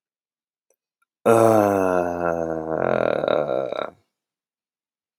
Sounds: Sigh